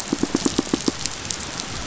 {"label": "biophony, pulse", "recorder": "SoundTrap 500"}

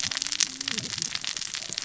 {"label": "biophony, cascading saw", "recorder": "SoundTrap 600 or HydroMoth"}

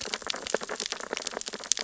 {"label": "biophony, sea urchins (Echinidae)", "recorder": "SoundTrap 600 or HydroMoth"}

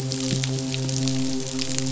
{"label": "biophony, midshipman", "recorder": "SoundTrap 500"}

